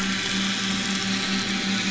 {"label": "anthrophony, boat engine", "recorder": "SoundTrap 500"}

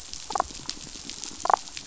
{"label": "biophony, damselfish", "recorder": "SoundTrap 500"}
{"label": "biophony", "recorder": "SoundTrap 500"}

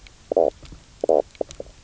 {"label": "biophony, knock croak", "recorder": "SoundTrap 300"}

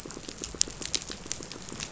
{"label": "biophony, pulse", "recorder": "SoundTrap 500"}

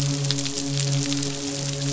{"label": "biophony, midshipman", "recorder": "SoundTrap 500"}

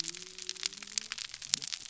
{"label": "biophony", "recorder": "SoundTrap 300"}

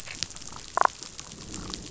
{"label": "biophony, damselfish", "recorder": "SoundTrap 500"}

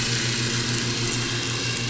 {"label": "anthrophony, boat engine", "recorder": "SoundTrap 500"}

